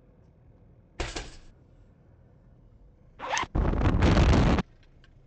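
At 0.98 seconds, a window opens. Then, at 3.18 seconds, there is the sound of a zipper. Finally, at 3.54 seconds, wind can be heard.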